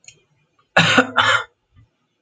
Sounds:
Cough